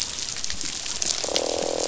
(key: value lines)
label: biophony, croak
recorder: SoundTrap 500